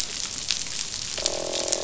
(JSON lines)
{"label": "biophony, croak", "recorder": "SoundTrap 500"}